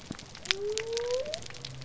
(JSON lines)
{"label": "biophony", "recorder": "SoundTrap 300"}